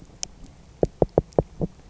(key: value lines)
label: biophony, knock
recorder: SoundTrap 300